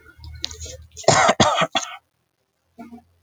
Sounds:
Cough